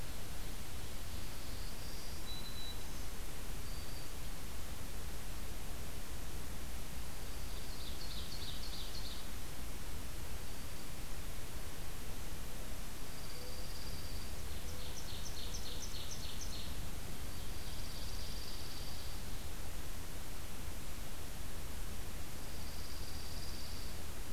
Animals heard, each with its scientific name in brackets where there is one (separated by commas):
Ovenbird (Seiurus aurocapilla), Dark-eyed Junco (Junco hyemalis), Mourning Dove (Zenaida macroura), Black-throated Green Warbler (Setophaga virens)